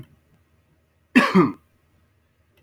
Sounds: Cough